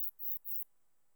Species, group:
Neocallicrania selligera
Orthoptera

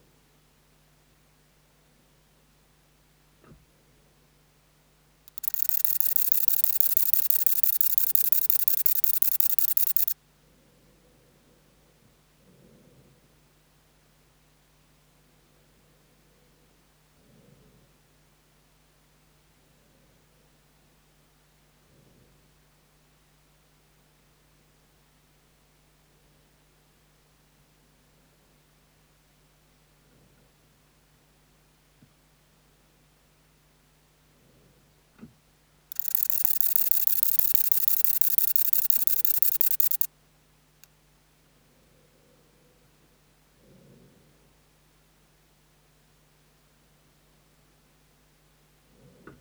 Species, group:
Conocephalus fuscus
Orthoptera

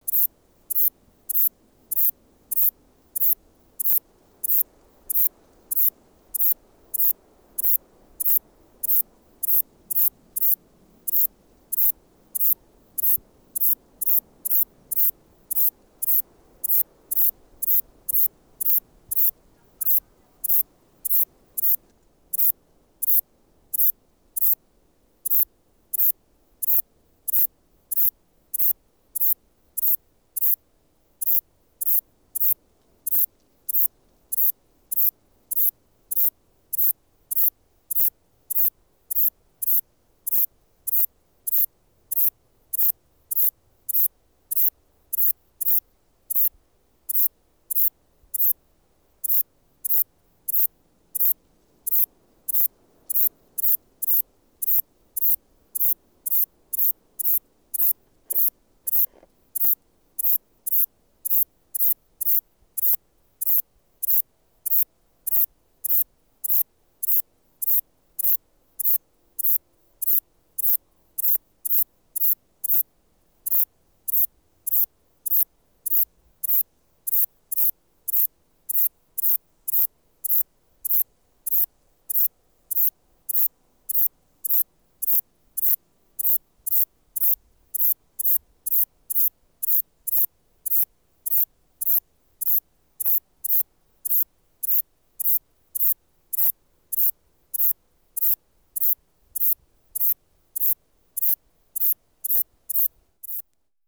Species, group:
Ephippiger diurnus
Orthoptera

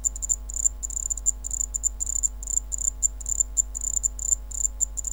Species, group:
Zvenella geniculata
Orthoptera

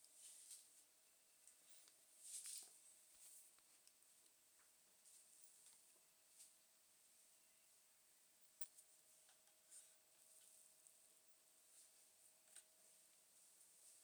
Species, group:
Poecilimon jonicus
Orthoptera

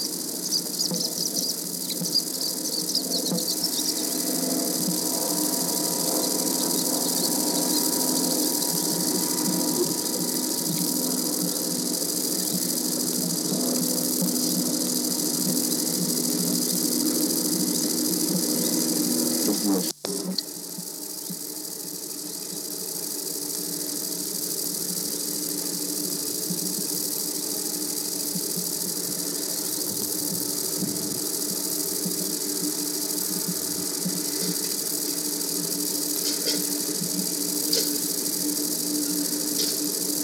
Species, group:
Conocephalus fuscus
Orthoptera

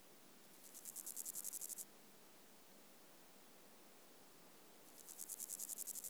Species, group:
Pseudochorthippus parallelus
Orthoptera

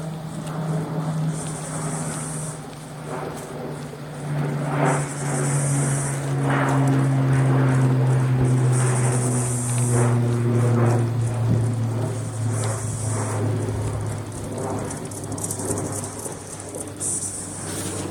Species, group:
Pauropsalta mneme
Cicadidae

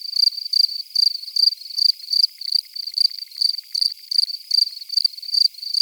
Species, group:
Gryllus campestris
Orthoptera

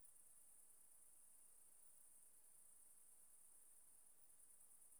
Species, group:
Phaneroptera nana
Orthoptera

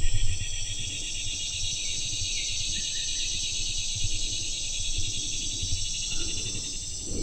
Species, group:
Neotibicen tibicen
Cicadidae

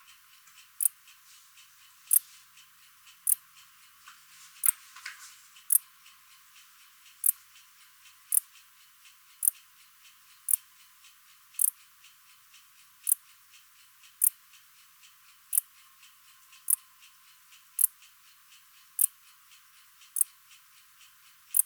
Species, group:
Pholidoptera griseoaptera
Orthoptera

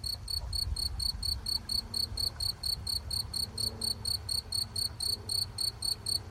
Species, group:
Gryllus campestris
Orthoptera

